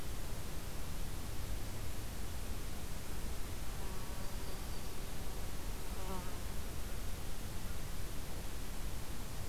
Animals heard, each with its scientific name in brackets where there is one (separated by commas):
Yellow-rumped Warbler (Setophaga coronata)